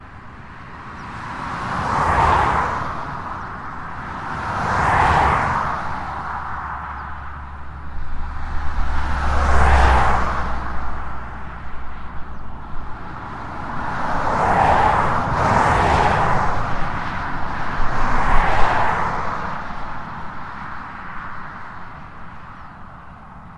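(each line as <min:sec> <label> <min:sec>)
0:00.1 A car passes by. 0:07.1
0:08.1 A car passes by. 0:12.3
0:13.2 Three cars pass by one after another. 0:22.0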